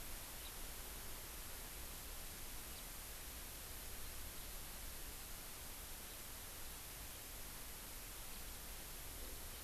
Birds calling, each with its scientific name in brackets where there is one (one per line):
House Finch (Haemorhous mexicanus)